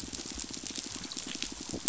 {"label": "biophony, pulse", "recorder": "SoundTrap 500"}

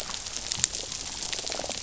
{"label": "biophony", "recorder": "SoundTrap 500"}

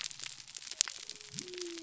{"label": "biophony", "recorder": "SoundTrap 300"}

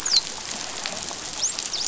{"label": "biophony, dolphin", "recorder": "SoundTrap 500"}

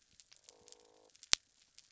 {"label": "biophony", "recorder": "SoundTrap 300"}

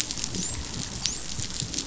{"label": "biophony, dolphin", "recorder": "SoundTrap 500"}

